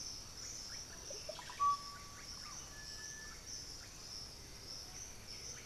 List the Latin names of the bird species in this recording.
Turdus ignobilis, Psarocolius angustifrons, Pachyramphus polychopterus